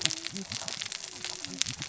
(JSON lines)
{"label": "biophony, cascading saw", "recorder": "SoundTrap 600 or HydroMoth"}